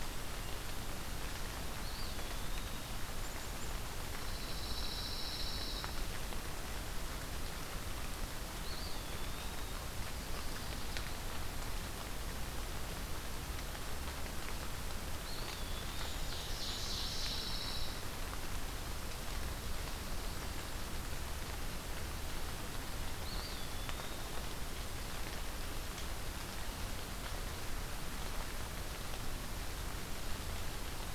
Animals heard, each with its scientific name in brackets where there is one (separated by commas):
Pine Warbler (Setophaga pinus), Eastern Wood-Pewee (Contopus virens), Ovenbird (Seiurus aurocapilla)